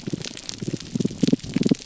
{"label": "biophony, damselfish", "recorder": "SoundTrap 300"}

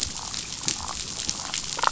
{"label": "biophony, damselfish", "recorder": "SoundTrap 500"}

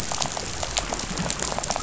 {"label": "biophony, rattle", "recorder": "SoundTrap 500"}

